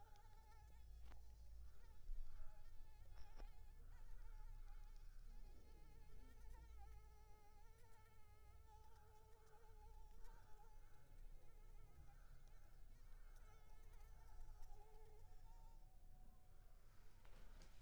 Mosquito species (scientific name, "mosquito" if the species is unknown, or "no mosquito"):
Anopheles arabiensis